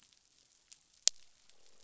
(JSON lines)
{"label": "biophony, croak", "recorder": "SoundTrap 500"}